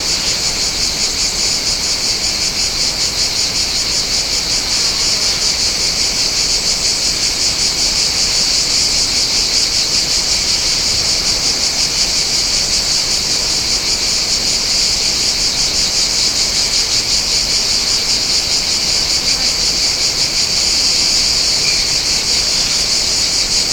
Does an owl hoot?
no